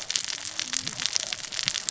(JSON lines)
{"label": "biophony, cascading saw", "recorder": "SoundTrap 600 or HydroMoth"}